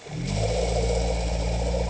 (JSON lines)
{"label": "anthrophony, boat engine", "recorder": "HydroMoth"}